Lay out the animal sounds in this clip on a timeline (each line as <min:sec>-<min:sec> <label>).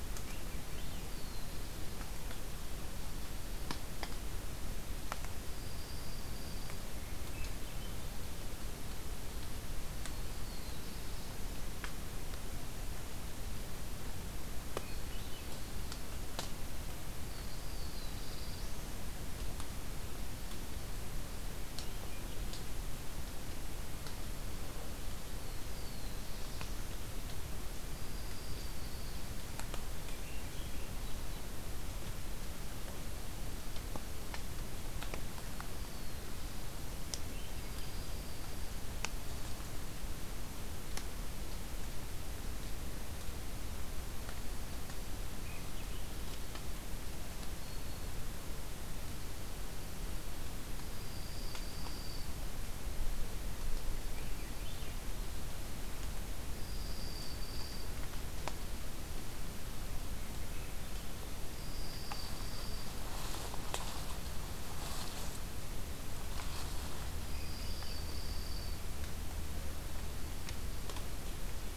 0:00.0-0:01.3 Swainson's Thrush (Catharus ustulatus)
0:01.0-0:02.3 Black-throated Blue Warbler (Setophaga caerulescens)
0:05.3-0:06.9 Dark-eyed Junco (Junco hyemalis)
0:06.8-0:08.2 Swainson's Thrush (Catharus ustulatus)
0:09.8-0:11.3 Black-throated Blue Warbler (Setophaga caerulescens)
0:14.7-0:15.8 Swainson's Thrush (Catharus ustulatus)
0:17.2-0:18.7 Dark-eyed Junco (Junco hyemalis)
0:17.6-0:19.0 Black-throated Blue Warbler (Setophaga caerulescens)
0:21.5-0:22.5 Swainson's Thrush (Catharus ustulatus)
0:25.1-0:26.9 Black-throated Blue Warbler (Setophaga caerulescens)
0:27.8-0:29.2 Dark-eyed Junco (Junco hyemalis)
0:29.8-0:31.0 Swainson's Thrush (Catharus ustulatus)
0:35.3-0:36.8 Black-throated Blue Warbler (Setophaga caerulescens)
0:37.1-0:38.0 Swainson's Thrush (Catharus ustulatus)
0:37.2-0:38.5 Dark-eyed Junco (Junco hyemalis)
0:45.3-0:46.2 Swainson's Thrush (Catharus ustulatus)
0:47.4-0:48.2 Black-throated Green Warbler (Setophaga virens)
0:50.8-0:52.4 Dark-eyed Junco (Junco hyemalis)
0:53.9-0:54.9 Swainson's Thrush (Catharus ustulatus)
0:56.4-0:58.0 Dark-eyed Junco (Junco hyemalis)
1:00.0-1:01.1 Swainson's Thrush (Catharus ustulatus)
1:01.4-1:02.9 Dark-eyed Junco (Junco hyemalis)
1:07.0-1:08.1 Swainson's Thrush (Catharus ustulatus)
1:07.1-1:08.8 Dark-eyed Junco (Junco hyemalis)